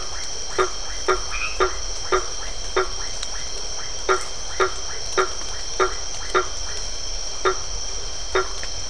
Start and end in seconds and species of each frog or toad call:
0.0	7.1	Iporanga white-lipped frog
0.0	8.8	blacksmith tree frog
1.1	1.7	white-edged tree frog

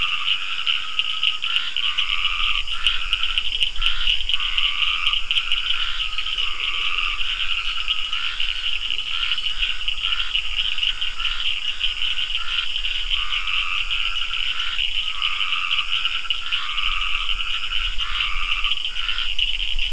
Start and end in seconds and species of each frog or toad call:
0.0	7.3	Dendropsophus nahdereri
0.0	19.9	Scinax perereca
0.0	19.9	Cochran's lime tree frog
12.8	19.0	Dendropsophus nahdereri

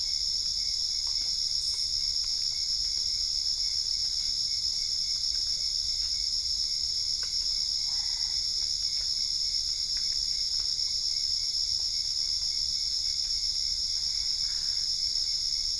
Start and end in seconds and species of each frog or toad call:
7.9	8.6	Boana albopunctata
14.3	15.0	Boana albopunctata

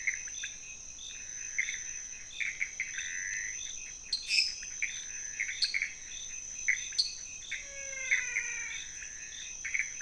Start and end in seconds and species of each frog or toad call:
0.0	10.0	pointedbelly frog
0.0	10.0	Pithecopus azureus
4.3	4.7	lesser tree frog
5.4	5.8	dwarf tree frog
7.0	7.2	dwarf tree frog
7.5	8.9	menwig frog

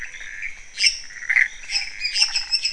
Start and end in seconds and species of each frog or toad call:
0.0	2.7	pointedbelly frog
0.0	2.7	Pithecopus azureus
0.7	2.7	lesser tree frog
1.3	2.6	waxy monkey tree frog

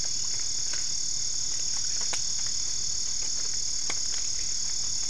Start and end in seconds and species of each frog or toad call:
none

